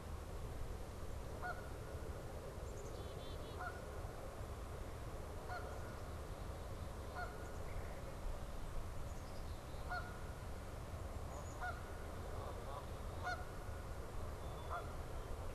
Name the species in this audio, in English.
Canada Goose, Black-capped Chickadee, Red-bellied Woodpecker